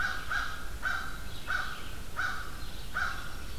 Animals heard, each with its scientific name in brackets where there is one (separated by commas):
Black-throated Green Warbler (Setophaga virens), Red-eyed Vireo (Vireo olivaceus), American Crow (Corvus brachyrhynchos)